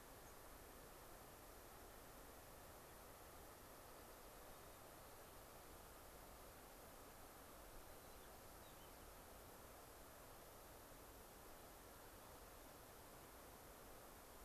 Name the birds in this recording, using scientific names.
Zonotrichia leucophrys